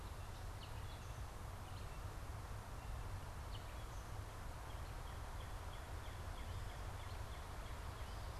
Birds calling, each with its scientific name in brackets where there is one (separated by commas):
Northern Cardinal (Cardinalis cardinalis), Gray Catbird (Dumetella carolinensis)